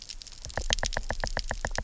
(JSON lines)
{"label": "biophony, knock", "recorder": "SoundTrap 300"}